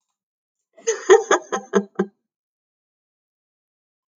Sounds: Laughter